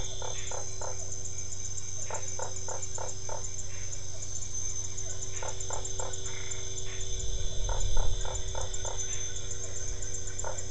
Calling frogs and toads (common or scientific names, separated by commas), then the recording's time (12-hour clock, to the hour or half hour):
Dendropsophus cruzi, Physalaemus cuvieri, Usina tree frog, Boana albopunctata
7pm